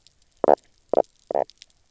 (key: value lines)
label: biophony, knock croak
recorder: SoundTrap 300